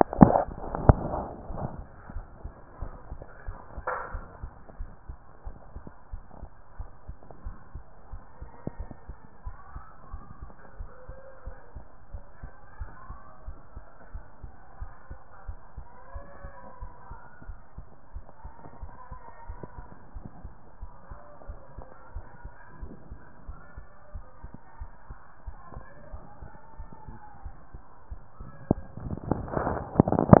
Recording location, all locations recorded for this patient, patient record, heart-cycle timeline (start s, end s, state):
aortic valve (AV)
aortic valve (AV)+aortic valve (AV)+pulmonary valve (PV)+tricuspid valve (TV)+mitral valve (MV)+mitral valve (MV)
#Age: nan
#Sex: Female
#Height: nan
#Weight: nan
#Pregnancy status: True
#Murmur: Absent
#Murmur locations: nan
#Most audible location: nan
#Systolic murmur timing: nan
#Systolic murmur shape: nan
#Systolic murmur grading: nan
#Systolic murmur pitch: nan
#Systolic murmur quality: nan
#Diastolic murmur timing: nan
#Diastolic murmur shape: nan
#Diastolic murmur grading: nan
#Diastolic murmur pitch: nan
#Diastolic murmur quality: nan
#Outcome: Abnormal
#Campaign: 2014 screening campaign
0.00	2.14	unannotated
2.14	2.26	S1
2.26	2.42	systole
2.42	2.52	S2
2.52	2.80	diastole
2.80	2.92	S1
2.92	3.10	systole
3.10	3.20	S2
3.20	3.46	diastole
3.46	3.58	S1
3.58	3.74	systole
3.74	3.84	S2
3.84	4.12	diastole
4.12	4.24	S1
4.24	4.42	systole
4.42	4.50	S2
4.50	4.78	diastole
4.78	4.90	S1
4.90	5.08	systole
5.08	5.18	S2
5.18	5.46	diastole
5.46	5.56	S1
5.56	5.74	systole
5.74	5.84	S2
5.84	6.12	diastole
6.12	6.22	S1
6.22	6.40	systole
6.40	6.50	S2
6.50	6.78	diastole
6.78	6.88	S1
6.88	7.06	systole
7.06	7.16	S2
7.16	7.44	diastole
7.44	7.56	S1
7.56	7.74	systole
7.74	7.84	S2
7.84	8.12	diastole
8.12	8.22	S1
8.22	8.40	systole
8.40	8.50	S2
8.50	8.78	diastole
8.78	8.90	S1
8.90	9.08	systole
9.08	9.16	S2
9.16	9.44	diastole
9.44	9.56	S1
9.56	9.74	systole
9.74	9.84	S2
9.84	10.12	diastole
10.12	10.24	S1
10.24	10.40	systole
10.40	10.50	S2
10.50	10.78	diastole
10.78	10.90	S1
10.90	11.08	systole
11.08	11.18	S2
11.18	11.46	diastole
11.46	11.56	S1
11.56	11.74	systole
11.74	11.84	S2
11.84	12.12	diastole
12.12	12.24	S1
12.24	12.42	systole
12.42	12.50	S2
12.50	12.80	diastole
12.80	12.90	S1
12.90	13.08	systole
13.08	13.18	S2
13.18	13.46	diastole
13.46	13.58	S1
13.58	13.74	systole
13.74	13.84	S2
13.84	14.12	diastole
14.12	14.24	S1
14.24	14.42	systole
14.42	14.52	S2
14.52	14.80	diastole
14.80	14.92	S1
14.92	15.10	systole
15.10	15.18	S2
15.18	15.46	diastole
15.46	15.58	S1
15.58	15.76	systole
15.76	15.86	S2
15.86	16.14	diastole
16.14	16.24	S1
16.24	16.42	systole
16.42	16.52	S2
16.52	16.80	diastole
16.80	16.92	S1
16.92	17.10	systole
17.10	17.20	S2
17.20	17.46	diastole
17.46	17.58	S1
17.58	17.76	systole
17.76	17.86	S2
17.86	18.14	diastole
18.14	18.24	S1
18.24	18.44	systole
18.44	18.52	S2
18.52	18.80	diastole
18.80	18.92	S1
18.92	19.10	systole
19.10	19.20	S2
19.20	19.48	diastole
19.48	19.60	S1
19.60	19.76	systole
19.76	19.86	S2
19.86	20.14	diastole
20.14	20.26	S1
20.26	20.42	systole
20.42	20.54	S2
20.54	20.80	diastole
20.80	20.92	S1
20.92	21.10	systole
21.10	21.20	S2
21.20	21.48	diastole
21.48	21.58	S1
21.58	21.76	systole
21.76	21.86	S2
21.86	22.14	diastole
22.14	22.26	S1
22.26	22.44	systole
22.44	22.52	S2
22.52	22.80	diastole
22.80	22.92	S1
22.92	23.10	systole
23.10	23.20	S2
23.20	23.46	diastole
23.46	23.58	S1
23.58	23.76	systole
23.76	23.86	S2
23.86	24.14	diastole
24.14	24.24	S1
24.24	24.42	systole
24.42	24.52	S2
24.52	24.80	diastole
24.80	24.90	S1
24.90	25.08	systole
25.08	25.18	S2
25.18	25.46	diastole
25.46	25.56	S1
25.56	25.74	systole
25.74	25.84	S2
25.84	26.12	diastole
26.12	26.22	S1
26.22	26.40	systole
26.40	26.50	S2
26.50	26.78	diastole
26.78	26.90	S1
26.90	27.08	systole
27.08	27.18	S2
27.18	27.44	diastole
27.44	27.56	S1
27.56	27.72	systole
27.72	27.82	S2
27.82	28.10	diastole
28.10	28.20	S1
28.20	28.40	systole
28.40	28.50	S2
28.50	28.72	diastole
28.72	30.40	unannotated